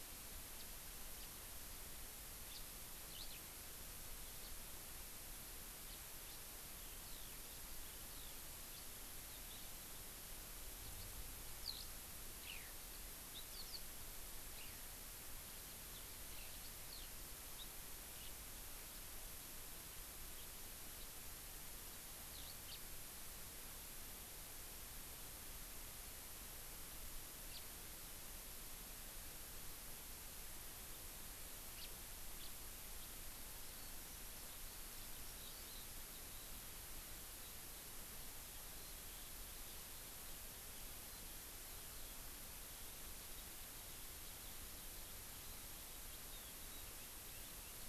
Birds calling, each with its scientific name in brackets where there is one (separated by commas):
Eurasian Skylark (Alauda arvensis), House Finch (Haemorhous mexicanus)